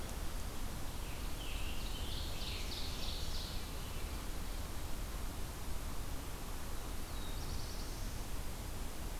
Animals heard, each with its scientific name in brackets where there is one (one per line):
Ovenbird (Seiurus aurocapilla)
Black-throated Blue Warbler (Setophaga caerulescens)
Scarlet Tanager (Piranga olivacea)